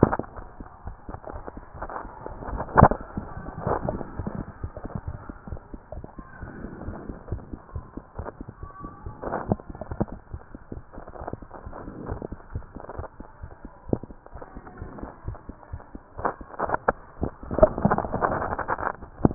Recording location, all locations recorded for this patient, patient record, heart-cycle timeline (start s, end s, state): mitral valve (MV)
aortic valve (AV)+pulmonary valve (PV)+tricuspid valve (TV)+mitral valve (MV)
#Age: Child
#Sex: Male
#Height: 127.0 cm
#Weight: 36.3 kg
#Pregnancy status: False
#Murmur: Absent
#Murmur locations: nan
#Most audible location: nan
#Systolic murmur timing: nan
#Systolic murmur shape: nan
#Systolic murmur grading: nan
#Systolic murmur pitch: nan
#Systolic murmur quality: nan
#Diastolic murmur timing: nan
#Diastolic murmur shape: nan
#Diastolic murmur grading: nan
#Diastolic murmur pitch: nan
#Diastolic murmur quality: nan
#Outcome: Abnormal
#Campaign: 2014 screening campaign
0.00	5.00	unannotated
5.00	5.06	diastole
5.06	5.16	S1
5.16	5.28	systole
5.28	5.34	S2
5.34	5.48	diastole
5.48	5.60	S1
5.60	5.72	systole
5.72	5.80	S2
5.80	5.94	diastole
5.94	6.04	S1
6.04	6.18	systole
6.18	6.26	S2
6.26	6.42	diastole
6.42	6.52	S1
6.52	6.62	systole
6.62	6.70	S2
6.70	6.86	diastole
6.86	6.98	S1
6.98	7.08	systole
7.08	7.16	S2
7.16	7.30	diastole
7.30	7.42	S1
7.42	7.50	systole
7.50	7.58	S2
7.58	7.74	diastole
7.74	7.84	S1
7.84	7.96	systole
7.96	8.04	S2
8.04	8.18	diastole
8.18	8.28	S1
8.28	8.40	systole
8.40	8.48	S2
8.48	8.62	diastole
8.62	8.70	S1
8.70	8.82	systole
8.82	8.92	S2
8.92	9.06	diastole
9.06	19.34	unannotated